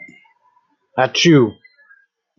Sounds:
Sneeze